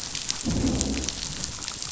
{"label": "biophony, growl", "recorder": "SoundTrap 500"}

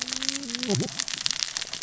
{"label": "biophony, cascading saw", "recorder": "SoundTrap 600 or HydroMoth"}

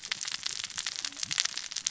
{"label": "biophony, cascading saw", "recorder": "SoundTrap 600 or HydroMoth"}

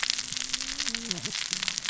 {"label": "biophony, cascading saw", "recorder": "SoundTrap 600 or HydroMoth"}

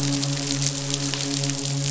{"label": "biophony, midshipman", "recorder": "SoundTrap 500"}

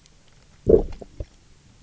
{"label": "biophony, low growl", "recorder": "SoundTrap 300"}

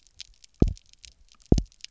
{"label": "biophony, double pulse", "recorder": "SoundTrap 300"}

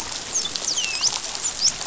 {"label": "biophony, dolphin", "recorder": "SoundTrap 500"}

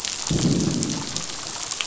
{"label": "biophony, growl", "recorder": "SoundTrap 500"}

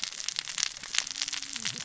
{"label": "biophony, cascading saw", "recorder": "SoundTrap 600 or HydroMoth"}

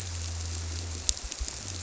{"label": "biophony", "recorder": "SoundTrap 300"}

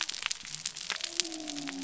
{"label": "biophony", "recorder": "SoundTrap 300"}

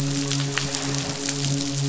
{"label": "biophony, midshipman", "recorder": "SoundTrap 500"}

